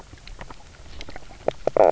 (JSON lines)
{"label": "biophony, knock croak", "recorder": "SoundTrap 300"}